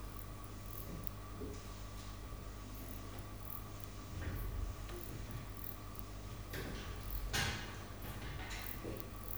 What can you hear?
Barbitistes ocskayi, an orthopteran